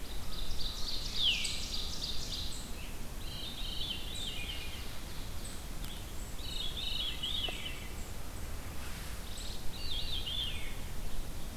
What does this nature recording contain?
Ovenbird, Veery